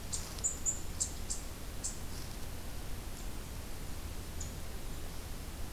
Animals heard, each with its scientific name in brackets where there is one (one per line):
Eastern Chipmunk (Tamias striatus)